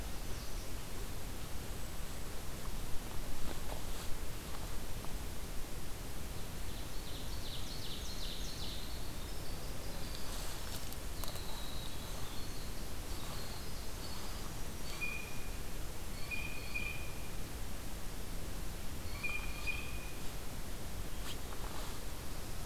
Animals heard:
Winter Wren (Troglodytes hiemalis)
Ovenbird (Seiurus aurocapilla)
Blue Jay (Cyanocitta cristata)

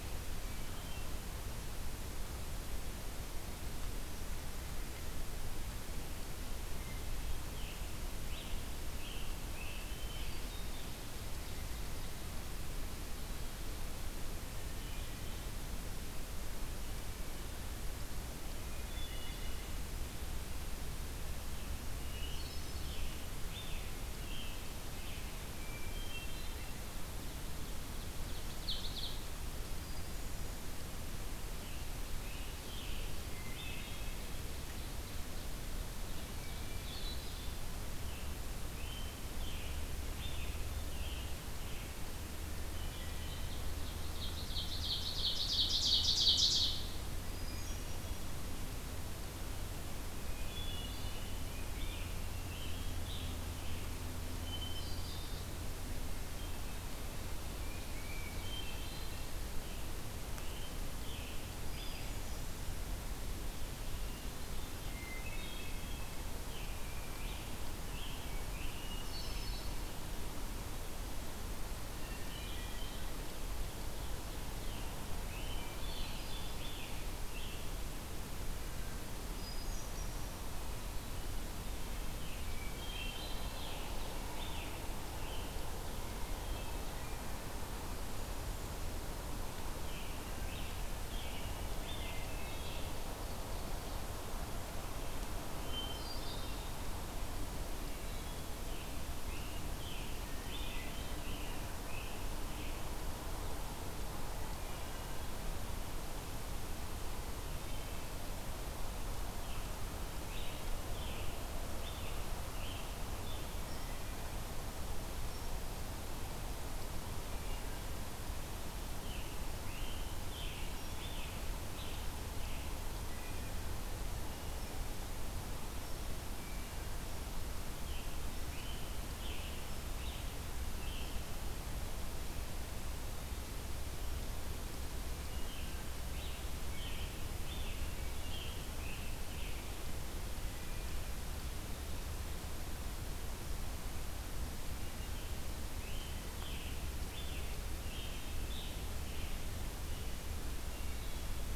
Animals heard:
Wood Thrush (Hylocichla mustelina)
Tufted Titmouse (Baeolophus bicolor)
Scarlet Tanager (Piranga olivacea)
Hermit Thrush (Catharus guttatus)
Ovenbird (Seiurus aurocapilla)

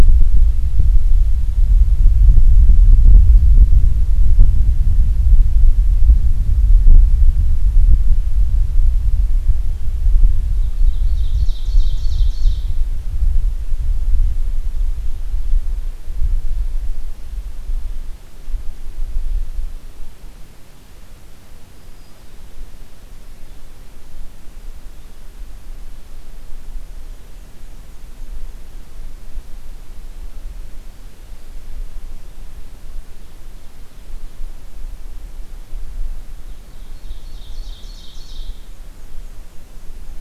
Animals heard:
Black-and-white Warbler (Mniotilta varia)
Black-throated Green Warbler (Setophaga virens)
Ovenbird (Seiurus aurocapilla)

